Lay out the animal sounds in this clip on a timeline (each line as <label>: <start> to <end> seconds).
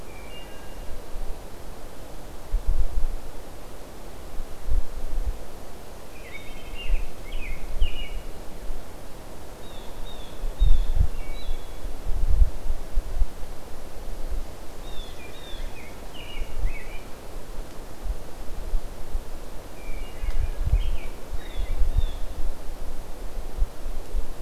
Wood Thrush (Hylocichla mustelina): 0.0 to 0.9 seconds
American Robin (Turdus migratorius): 5.9 to 8.4 seconds
Wood Thrush (Hylocichla mustelina): 6.1 to 6.8 seconds
Blue Jay (Cyanocitta cristata): 9.5 to 11.0 seconds
Wood Thrush (Hylocichla mustelina): 11.0 to 12.0 seconds
Blue Jay (Cyanocitta cristata): 14.6 to 15.8 seconds
American Robin (Turdus migratorius): 15.5 to 17.6 seconds
Wood Thrush (Hylocichla mustelina): 19.7 to 20.7 seconds
American Robin (Turdus migratorius): 20.5 to 22.0 seconds
Blue Jay (Cyanocitta cristata): 21.3 to 22.3 seconds